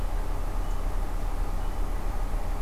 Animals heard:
forest ambience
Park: Acadia National Park